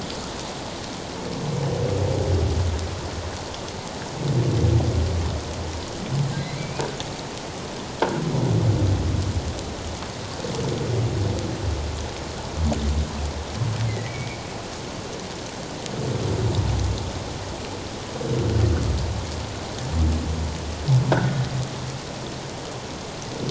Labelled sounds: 6.5	6.8	humpback whale, 2.2 to 2.5 kHz
13.9	14.4	humpback whale, 1.9 to 2.4 kHz
21.1	21.4	croaking sound likely from a nearby submerged object, 1.3 to 1.7 kHz

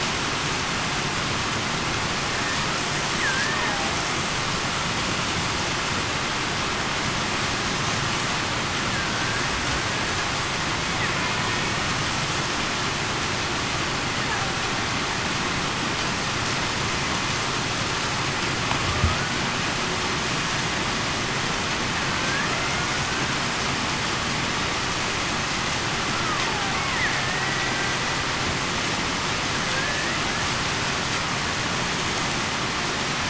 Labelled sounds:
3.3	3.8	killer whale, Bigg's (transient), 1.5 to 1.9 kHz
8.9	9.4	killer whale, Bigg's (transient), 1.5 to 1.7 kHz
22.1	22.5	killer whale, Bigg's (transient), 1.5 to 1.9 kHz
27.2	27.7	killer whale, Bigg's (transient), 1.8 to 2.0 kHz
29.7	30.1	killer whale, Bigg's (transient), 1.6 to 1.9 kHz

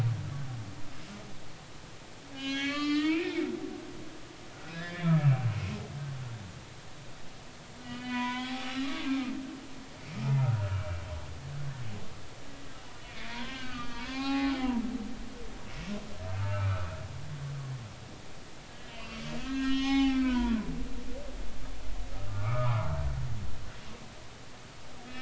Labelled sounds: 2.3	3.5	humpback whale, 0.80 to 5.2 kHz
4.5	5.2	humpback whale, 1.3 to 5.1 kHz
7.8	9.3	humpback whale, 0.80 to 4.0 kHz
10.4	10.9	humpback whale, 1.2 to 1.5 kHz
13.1	14.6	humpback whale, 0.80 to 4.3 kHz
16.4	16.9	humpback whale, 1.1 to 1.6 kHz
18.7	20.6	humpback whale, 0.80 to 6.0 kHz
22.3	23.0	humpback whale, 0.80 to 1.5 kHz

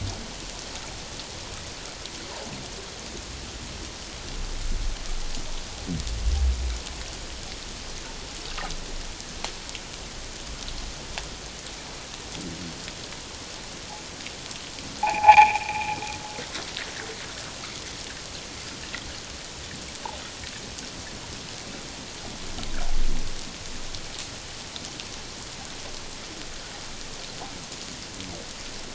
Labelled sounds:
15.0	15.9	noise likely from the mooring, 0.78 to 2.7 kHz

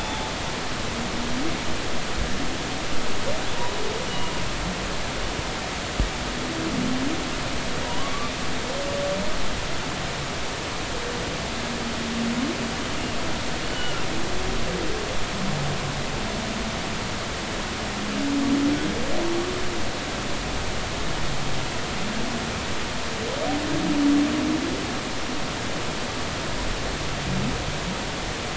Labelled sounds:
0.0	0.3	humpback whale, 3.4 to 3.7 kHz
4.1	4.3	humpback whale, 2.8 to 3.0 kHz
7.8	8.3	humpback whale, 0.90 to 1.2 kHz
13.7	14.1	humpback whale, 2.7 to 3.0 kHz

